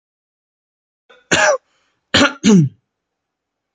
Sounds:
Cough